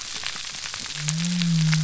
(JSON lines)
{"label": "biophony", "recorder": "SoundTrap 300"}